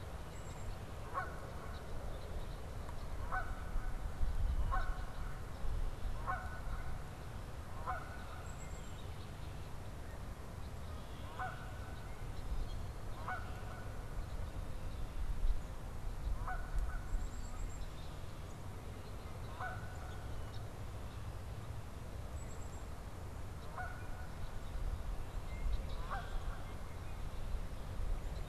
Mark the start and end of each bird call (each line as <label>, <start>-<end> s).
Red-winged Blackbird (Agelaius phoeniceus), 0.0-2.6 s
Canada Goose (Branta canadensis), 0.0-17.1 s
Red-winged Blackbird (Agelaius phoeniceus), 8.2-9.0 s
Red-winged Blackbird (Agelaius phoeniceus), 10.5-11.8 s
Red-winged Blackbird (Agelaius phoeniceus), 16.9-17.8 s
Canada Goose (Branta canadensis), 19.4-20.7 s
Red-winged Blackbird (Agelaius phoeniceus), 20.4-20.7 s
Black-capped Chickadee (Poecile atricapillus), 22.2-22.9 s
Canada Goose (Branta canadensis), 23.4-24.3 s
Red-winged Blackbird (Agelaius phoeniceus), 25.3-27.4 s